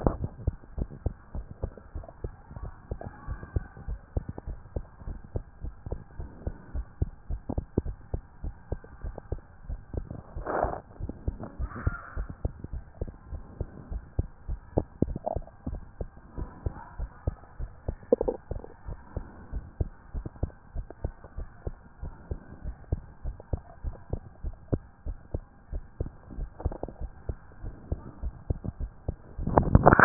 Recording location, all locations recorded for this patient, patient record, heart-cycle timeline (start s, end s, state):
tricuspid valve (TV)
aortic valve (AV)+pulmonary valve (PV)+tricuspid valve (TV)+mitral valve (MV)
#Age: Child
#Sex: Female
#Height: nan
#Weight: 24.2 kg
#Pregnancy status: False
#Murmur: Absent
#Murmur locations: nan
#Most audible location: nan
#Systolic murmur timing: nan
#Systolic murmur shape: nan
#Systolic murmur grading: nan
#Systolic murmur pitch: nan
#Systolic murmur quality: nan
#Diastolic murmur timing: nan
#Diastolic murmur shape: nan
#Diastolic murmur grading: nan
#Diastolic murmur pitch: nan
#Diastolic murmur quality: nan
#Outcome: Normal
#Campaign: 2014 screening campaign
0.00	0.20	S1
0.20	0.36	systole
0.36	0.52	S2
0.52	0.74	diastole
0.74	0.88	S1
0.88	0.98	systole
0.98	1.12	S2
1.12	1.34	diastole
1.34	1.46	S1
1.46	1.60	systole
1.60	1.72	S2
1.72	1.94	diastole
1.94	2.06	S1
2.06	2.20	systole
2.20	2.32	S2
2.32	2.58	diastole
2.58	2.74	S1
2.74	2.88	systole
2.88	3.02	S2
3.02	3.28	diastole
3.28	3.40	S1
3.40	3.52	systole
3.52	3.66	S2
3.66	3.86	diastole
3.86	4.00	S1
4.00	4.12	systole
4.12	4.28	S2
4.28	4.46	diastole
4.46	4.58	S1
4.58	4.72	systole
4.72	4.84	S2
4.84	5.06	diastole
5.06	5.18	S1
5.18	5.32	systole
5.32	5.42	S2
5.42	5.62	diastole
5.62	5.74	S1
5.74	5.86	systole
5.86	5.98	S2
5.98	6.16	diastole
6.16	6.28	S1
6.28	6.44	systole
6.44	6.54	S2
6.54	6.72	diastole
6.72	6.86	S1
6.86	6.98	systole
6.98	7.10	S2
7.10	7.30	diastole
7.30	7.42	S1
7.42	7.56	systole
7.56	7.66	S2
7.66	7.86	diastole
7.86	7.96	S1
7.96	8.10	systole
8.10	8.22	S2
8.22	8.42	diastole
8.42	8.54	S1
8.54	8.70	systole
8.70	8.80	S2
8.80	9.02	diastole
9.02	9.16	S1
9.16	9.30	systole
9.30	9.44	S2
9.44	9.66	diastole
9.66	9.80	S1
9.80	9.94	systole
9.94	10.08	S2
10.08	10.34	diastole
10.34	10.46	S1
10.46	10.62	systole
10.62	10.76	S2
10.76	11.00	diastole
11.00	11.14	S1
11.14	11.26	systole
11.26	11.40	S2
11.40	11.58	diastole
11.58	11.72	S1
11.72	11.84	systole
11.84	11.98	S2
11.98	12.16	diastole
12.16	12.28	S1
12.28	12.42	systole
12.42	12.52	S2
12.52	12.72	diastole
12.72	12.84	S1
12.84	13.00	systole
13.00	13.10	S2
13.10	13.30	diastole
13.30	13.42	S1
13.42	13.58	systole
13.58	13.68	S2
13.68	13.90	diastole
13.90	14.04	S1
14.04	14.16	systole
14.16	14.30	S2
14.30	14.48	diastole
14.48	14.60	S1
14.60	14.76	systole
14.76	14.88	S2
14.88	15.10	diastole
15.10	15.20	S1
15.20	15.34	systole
15.34	15.44	S2
15.44	15.66	diastole
15.66	15.84	S1
15.84	15.98	systole
15.98	16.10	S2
16.10	16.36	diastole
16.36	16.50	S1
16.50	16.64	systole
16.64	16.74	S2
16.74	16.96	diastole
16.96	17.10	S1
17.10	17.24	systole
17.24	17.38	S2
17.38	17.58	diastole
17.58	17.72	S1
17.72	17.86	systole
17.86	18.00	S2
18.00	18.20	diastole
18.20	18.34	S1
18.34	18.50	systole
18.50	18.64	S2
18.64	18.86	diastole
18.86	19.00	S1
19.00	19.12	systole
19.12	19.24	S2
19.24	19.50	diastole
19.50	19.66	S1
19.66	19.78	systole
19.78	19.94	S2
19.94	20.14	diastole
20.14	20.24	S1
20.24	20.38	systole
20.38	20.54	S2
20.54	20.74	diastole
20.74	20.86	S1
20.86	21.00	systole
21.00	21.12	S2
21.12	21.36	diastole
21.36	21.48	S1
21.48	21.62	systole
21.62	21.76	S2
21.76	22.02	diastole
22.02	22.16	S1
22.16	22.30	systole
22.30	22.42	S2
22.42	22.64	diastole
22.64	22.76	S1
22.76	22.90	systole
22.90	23.06	S2
23.06	23.24	diastole
23.24	23.38	S1
23.38	23.54	systole
23.54	23.66	S2
23.66	23.86	diastole
23.86	23.96	S1
23.96	24.12	systole
24.12	24.26	S2
24.26	24.44	diastole
24.44	24.56	S1
24.56	24.70	systole
24.70	24.84	S2
24.84	25.06	diastole
25.06	25.18	S1
25.18	25.32	systole
25.32	25.48	S2
25.48	25.72	diastole
25.72	25.84	S1
25.84	25.98	systole
25.98	26.12	S2
26.12	26.36	diastole
26.36	26.50	S1
26.50	26.64	systole
26.64	26.76	S2
26.76	27.00	diastole
27.00	27.14	S1
27.14	27.28	systole
27.28	27.38	S2
27.38	27.62	diastole
27.62	27.74	S1
27.74	27.88	systole
27.88	28.04	S2
28.04	28.22	diastole
28.22	28.36	S1
28.36	28.48	systole
28.48	28.62	S2
28.62	28.80	diastole
28.80	28.92	S1
28.92	29.06	systole
29.06	29.22	S2
29.22	29.50	diastole
29.50	29.68	S1
29.68	29.80	systole
29.80	29.96	S2
29.96	30.05	diastole